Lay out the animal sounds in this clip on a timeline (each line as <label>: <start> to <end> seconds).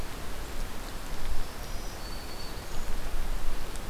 Black-throated Green Warbler (Setophaga virens): 1.0 to 2.9 seconds
Purple Finch (Haemorhous purpureus): 2.0 to 3.9 seconds